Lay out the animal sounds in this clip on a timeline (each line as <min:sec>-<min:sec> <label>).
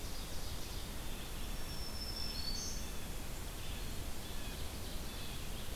0:00.0-0:01.1 Ovenbird (Seiurus aurocapilla)
0:00.0-0:05.8 Red-eyed Vireo (Vireo olivaceus)
0:01.1-0:03.0 Black-throated Green Warbler (Setophaga virens)
0:04.0-0:05.8 Ovenbird (Seiurus aurocapilla)